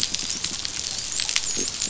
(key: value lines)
label: biophony, dolphin
recorder: SoundTrap 500